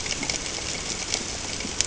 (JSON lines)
{"label": "ambient", "recorder": "HydroMoth"}